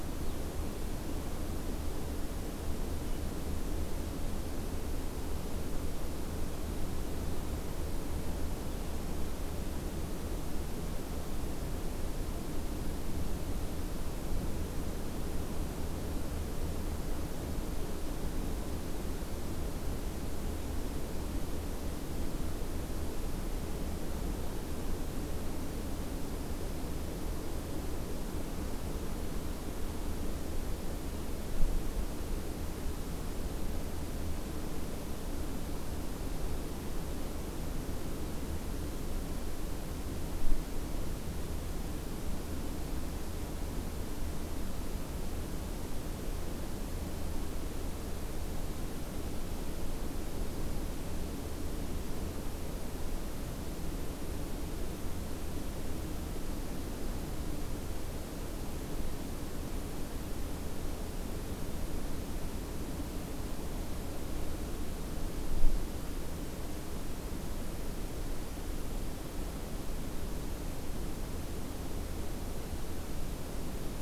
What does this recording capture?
forest ambience